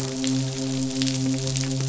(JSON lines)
{"label": "biophony, midshipman", "recorder": "SoundTrap 500"}